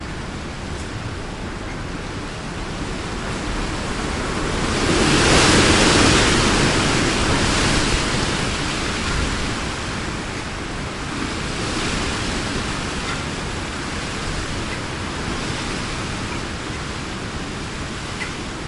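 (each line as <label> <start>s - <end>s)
Storm rain with strong winds. 0.0s - 18.7s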